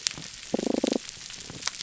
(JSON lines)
{"label": "biophony, damselfish", "recorder": "SoundTrap 300"}